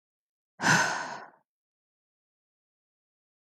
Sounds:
Sigh